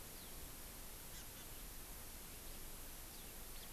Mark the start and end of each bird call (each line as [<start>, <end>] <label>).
[1.07, 1.57] Hawaii Amakihi (Chlorodrepanis virens)